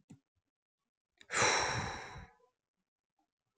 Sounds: Sigh